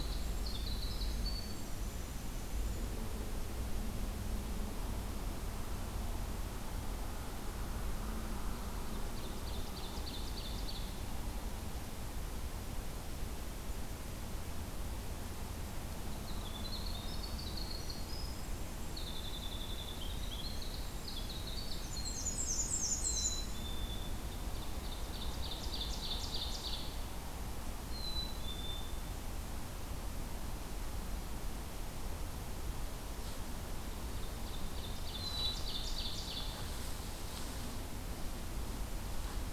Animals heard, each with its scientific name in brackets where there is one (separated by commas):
Ovenbird (Seiurus aurocapilla), Black-and-white Warbler (Mniotilta varia), Black-capped Chickadee (Poecile atricapillus), Winter Wren (Troglodytes hiemalis)